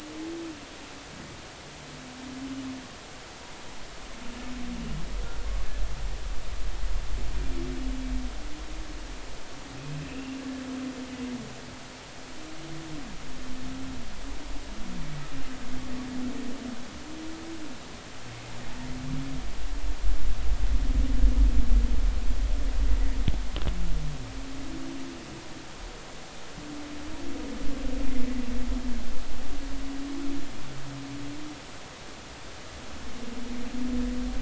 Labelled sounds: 9.8	10.4	humpback whale, 2.4 to 2.9 kHz

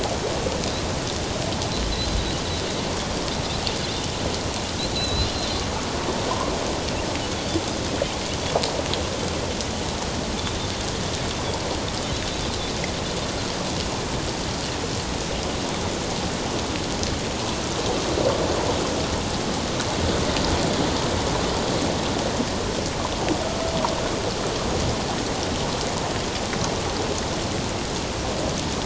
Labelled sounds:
4.9	5.3	Pacific white-sided dolphin, 2.6 to 4.2 kHz
23.4	23.7	Pacific white-sided dolphin, 1.2 to 1.4 kHz

